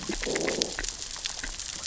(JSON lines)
{"label": "biophony, growl", "recorder": "SoundTrap 600 or HydroMoth"}